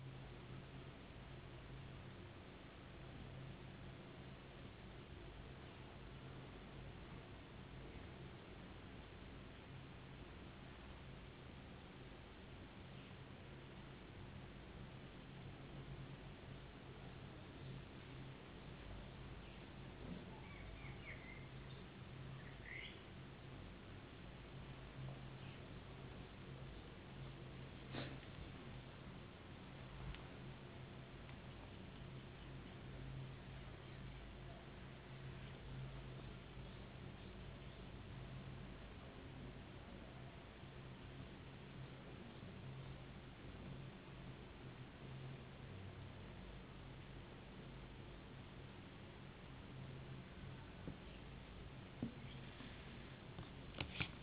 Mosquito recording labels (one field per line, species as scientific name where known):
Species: no mosquito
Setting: insect culture